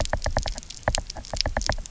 {"label": "biophony, knock", "recorder": "SoundTrap 300"}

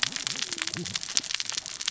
{"label": "biophony, cascading saw", "recorder": "SoundTrap 600 or HydroMoth"}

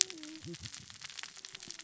{"label": "biophony, cascading saw", "recorder": "SoundTrap 600 or HydroMoth"}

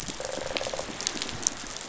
{"label": "biophony", "recorder": "SoundTrap 500"}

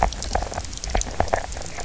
{"label": "biophony, knock croak", "recorder": "SoundTrap 300"}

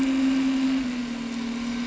{"label": "anthrophony, boat engine", "recorder": "SoundTrap 300"}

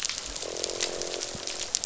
{"label": "biophony, croak", "recorder": "SoundTrap 500"}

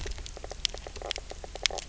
{"label": "biophony, knock croak", "recorder": "SoundTrap 300"}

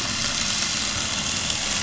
{"label": "anthrophony, boat engine", "recorder": "SoundTrap 500"}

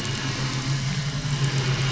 {"label": "anthrophony, boat engine", "recorder": "SoundTrap 500"}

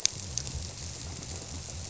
{"label": "biophony", "recorder": "SoundTrap 300"}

